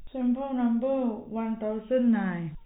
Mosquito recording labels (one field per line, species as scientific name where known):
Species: no mosquito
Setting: cup